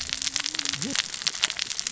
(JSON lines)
{"label": "biophony, cascading saw", "recorder": "SoundTrap 600 or HydroMoth"}